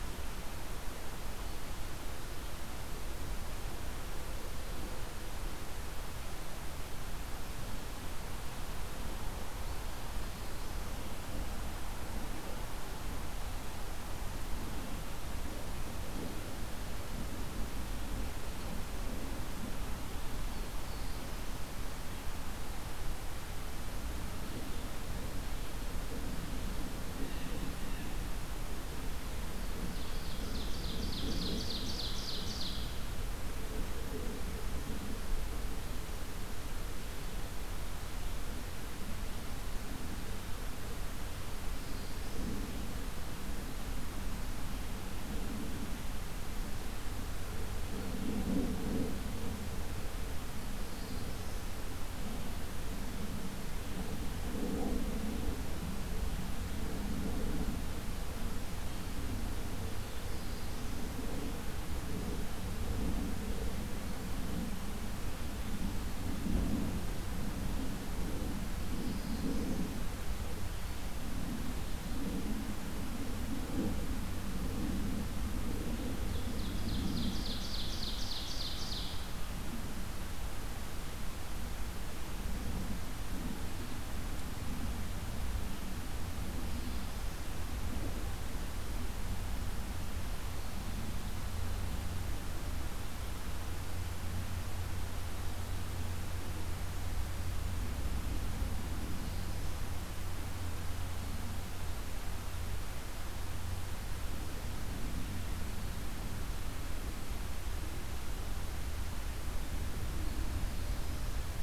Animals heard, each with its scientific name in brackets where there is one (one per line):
Ovenbird (Seiurus aurocapilla)
Blue Jay (Cyanocitta cristata)
Black-throated Blue Warbler (Setophaga caerulescens)